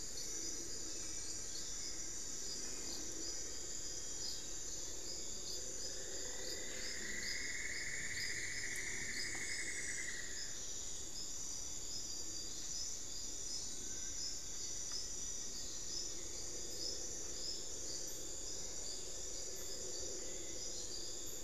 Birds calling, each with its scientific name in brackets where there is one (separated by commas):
Black-fronted Nunbird (Monasa nigrifrons), Rufous-fronted Antthrush (Formicarius rufifrons), Cinnamon-throated Woodcreeper (Dendrexetastes rufigula), Little Tinamou (Crypturellus soui)